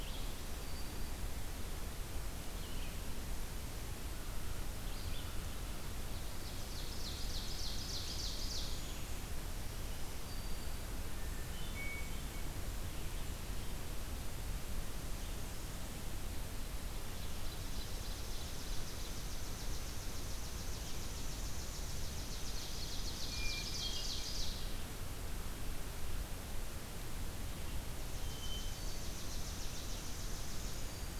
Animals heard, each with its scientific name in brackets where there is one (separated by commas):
Hermit Thrush (Catharus guttatus), Chipping Sparrow (Spizella passerina), Ovenbird (Seiurus aurocapilla), Black-throated Green Warbler (Setophaga virens)